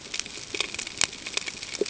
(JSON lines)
{"label": "ambient", "recorder": "HydroMoth"}